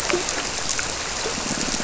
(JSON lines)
{"label": "biophony, squirrelfish (Holocentrus)", "recorder": "SoundTrap 300"}